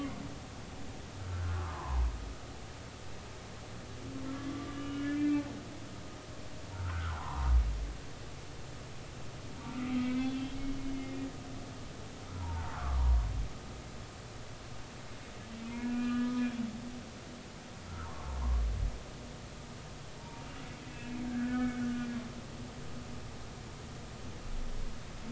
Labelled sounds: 1.2	2.0	humpback whale, 0.80 to 1.6 kHz
4.5	5.4	humpback whale, 1.1 to 3.0 kHz
6.7	7.5	humpback whale, 0.80 to 1.6 kHz
9.6	11.3	humpback whale, 1.2 to 2.8 kHz
12.3	13.2	humpback whale, 0.83 to 1.5 kHz
15.7	16.4	humpback whale, 1.2 to 2.7 kHz
18.0	18.4	humpback whale, 0.83 to 1.2 kHz
20.2	22.2	humpback whale, 0.86 to 2.5 kHz

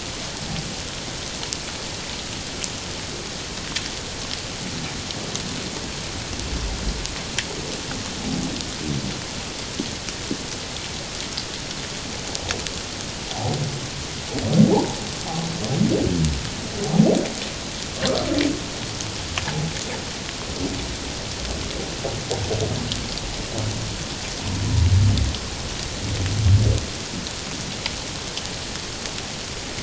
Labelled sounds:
13.3	13.6	humpback whale, 0.78 to 0.94 kHz
14.7	15.0	humpback whale, 0.78 to 1.0 kHz

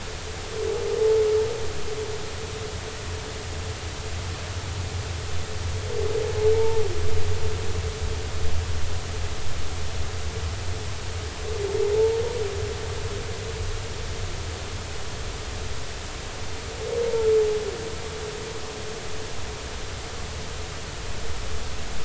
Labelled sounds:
6.5	6.8	humpback whale, 0.83 to 0.96 kHz

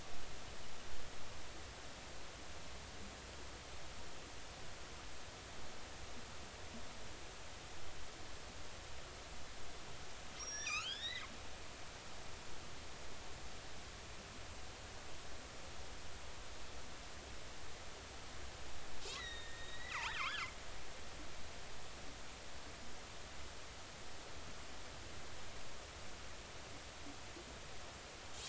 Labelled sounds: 10.4	11.3	killer whale, northern resident, G clan, GG subclan, call N29, 1.1 to 7.0 kHz
19.1	20.5	killer whale, northern resident, G clan, GG subclan, 0.83 to 4.1 kHz

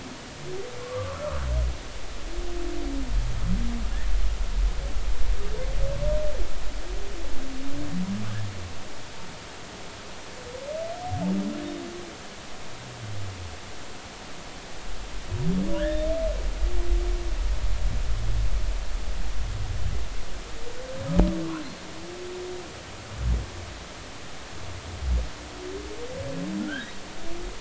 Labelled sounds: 0.8	1.4	humpback whale, 1.0 to 1.4 kHz
15.7	16.1	humpback whale, 1.4 to 3.8 kHz
26.6	27.0	humpback whale, 1.3 to 2.1 kHz

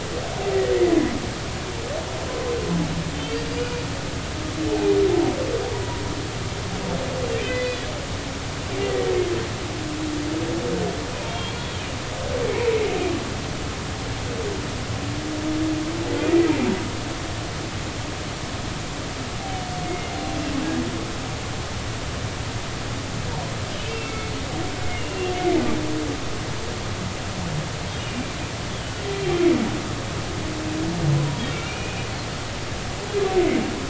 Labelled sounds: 3.6	3.8	humpback whale, 2.4 to 2.5 kHz
4.7	5.0	humpback whale, 0.80 to 0.90 kHz
7.4	7.9	humpback whale, 2.0 to 4.1 kHz
8.8	9.0	humpback whale, 1.9 to 2.1 kHz
11.2	11.5	humpback whale, 3.1 to 3.3 kHz
19.9	20.1	humpback whale, 2.0 to 2.2 kHz
23.9	25.3	humpback whale, 2.1 to 2.9 kHz
28.0	29.3	humpback whale, 2.8 to 3.2 kHz
31.5	32.0	humpback whale, 2.2 to 2.6 kHz

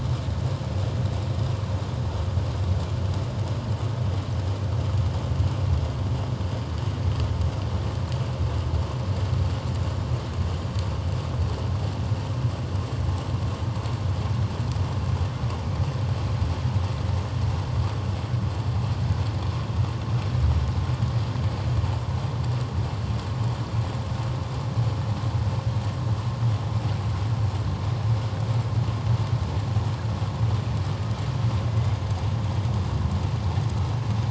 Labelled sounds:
31.7	32.0	killer whale, 2.0 to 2.2 kHz

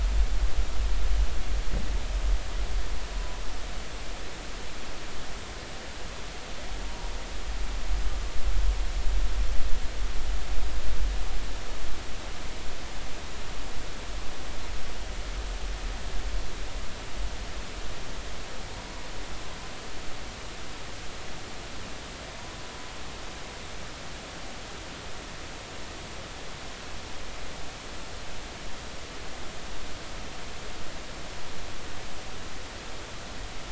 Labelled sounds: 6.8	7.1	humpback whale, 0.90 to 0.99 kHz

